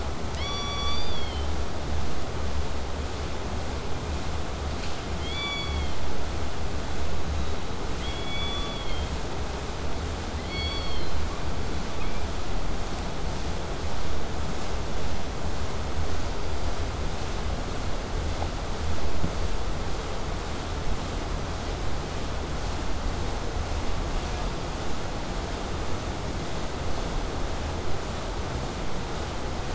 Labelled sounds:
5.2	6.0	killer whale, southern resident, K pod, call S16, 0.82 to 8.0 kHz
7.2	7.8	killer whale, southern resident, 3.6 to 4.3 kHz
10.4	11.2	killer whale, southern resident, K pod, call S16, 1.6 to 5.9 kHz

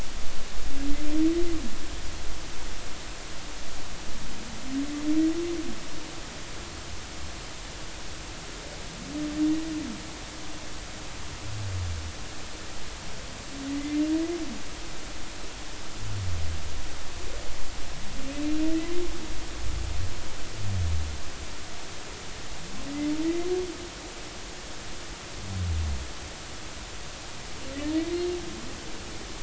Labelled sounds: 13.7	14.0	humpback whale, 1.9 to 2.1 kHz
23.2	23.5	humpback whale, 1.9 to 2.1 kHz

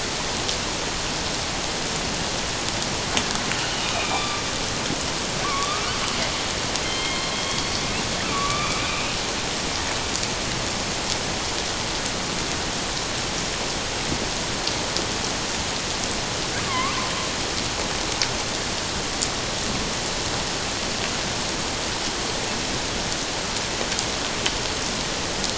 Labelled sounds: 3.8	4.4	killer whale, northern resident, A clan, AA subclan, 1.1 to 3.7 kHz
5.4	5.8	killer whale, northern resident, A clan, AA subclan, 1.0 to 1.3 kHz
6.8	7.7	killer whale, northern resident, A clan, AA subclan, 2.1 to 4.3 kHz
8.3	9.2	killer whale, northern resident, A clan, AA subclan, 1.1 to 2.6 kHz
16.6	17.1	killer whale, northern resident, A clan, AA subclan, 0.97 to 1.3 kHz

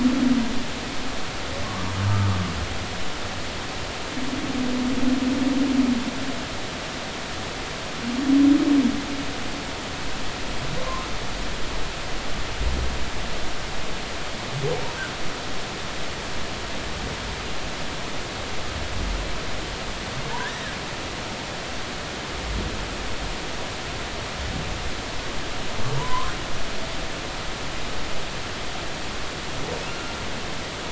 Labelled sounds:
2.0	2.3	humpback whale, 1.2 to 1.3 kHz
10.8	11.1	humpback whale, 0.96 to 1.2 kHz
20.4	20.6	humpback whale, 1.4 to 2.0 kHz
26.0	26.4	humpback whale, 0.90 to 1.5 kHz
29.9	30.1	humpback whale, 1.3 to 1.4 kHz

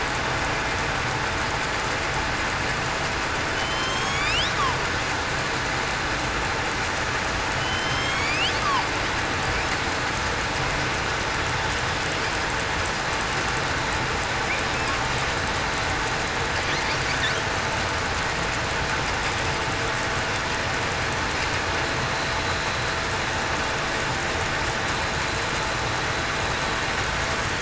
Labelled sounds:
3.5	4.3	killer whale, southern resident, 3.0 to 5.7 kHz
7.6	8.3	killer whale, southern resident, 2.9 to 6.5 kHz

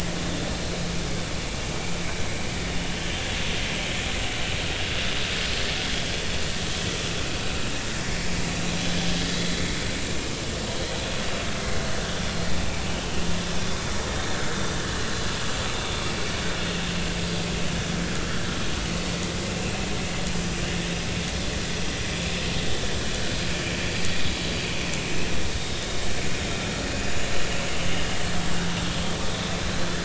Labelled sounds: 12.9	13.2	vessel noise, 2.8 to 3.1 kHz
25.6	25.9	vessel noise, 3.5 to 3.8 kHz

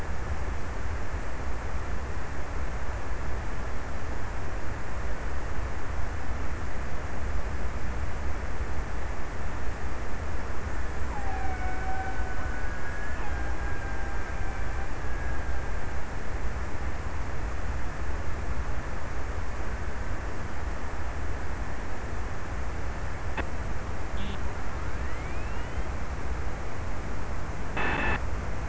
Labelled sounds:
10.9	16.7	killer whale, Bigg's (transient), 0.55 to 2.8 kHz

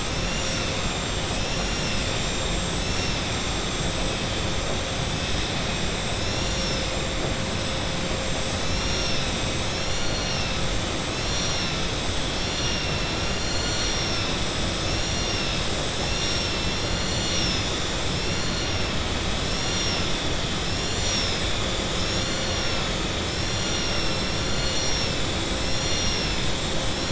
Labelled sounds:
0.8	1.4	vessel noise, 6.9 to 7.8 kHz
26.3	27.0	vessel noise, 7.0 to 7.9 kHz

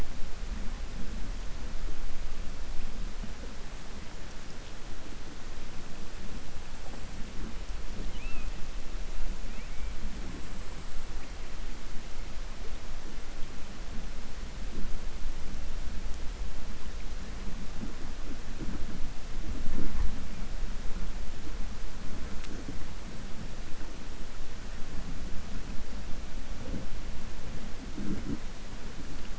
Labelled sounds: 8.0	8.5	killer whale, southern resident, 2.2 to 3.8 kHz

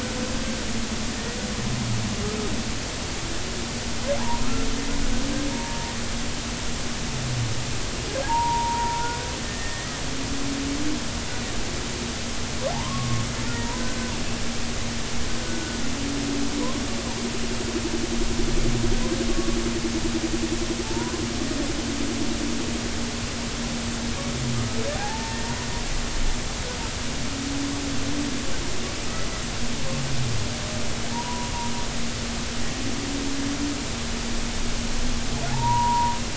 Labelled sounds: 1.1	1.4	humpback whale, 1.7 to 2.0 kHz
4.2	4.5	humpback whale, 0.80 to 1.1 kHz
5.5	5.9	humpback whale, 0.86 to 0.96 kHz
8.2	9.2	humpback whale, 0.80 to 1.5 kHz
9.5	10.0	humpback whale, 1.8 to 2.0 kHz
12.7	13.8	humpback whale, 0.80 to 2.0 kHz
15.4	15.8	humpback whale, 1.4 to 1.6 kHz
19.3	19.6	humpback whale, 1.1 to 1.2 kHz
20.8	21.2	humpback whale, 0.83 to 1.1 kHz
24.9	25.4	humpback whale, 0.80 to 0.96 kHz
31.1	31.5	humpback whale, 0.86 to 1.0 kHz
35.5	36.2	humpback whale, 0.80 to 1.1 kHz

